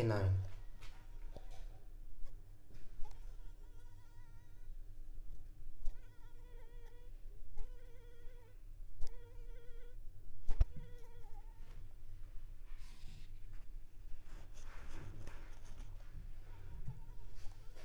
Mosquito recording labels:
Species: Anopheles arabiensis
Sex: female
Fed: unfed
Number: one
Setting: cup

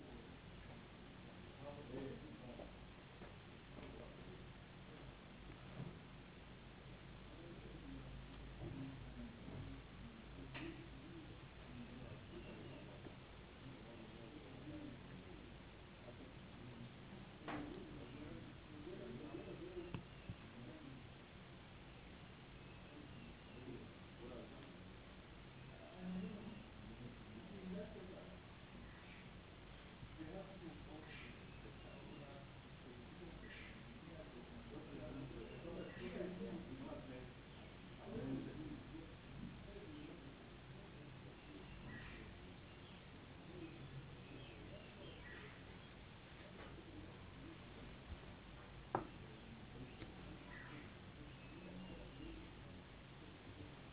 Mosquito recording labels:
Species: no mosquito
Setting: insect culture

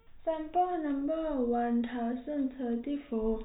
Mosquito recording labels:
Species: no mosquito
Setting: cup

